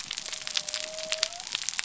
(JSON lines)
{"label": "biophony", "recorder": "SoundTrap 300"}